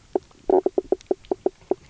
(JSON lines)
{"label": "biophony, knock croak", "recorder": "SoundTrap 300"}